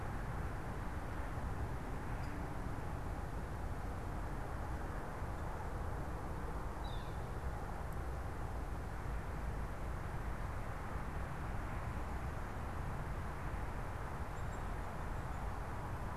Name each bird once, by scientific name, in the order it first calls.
Colaptes auratus